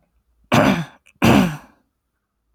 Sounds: Throat clearing